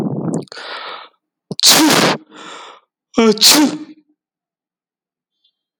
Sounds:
Sneeze